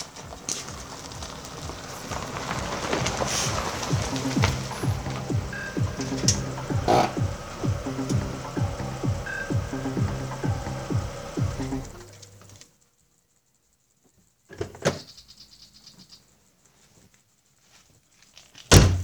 Does the music keep playing?
no